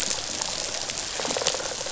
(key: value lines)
label: biophony
recorder: SoundTrap 500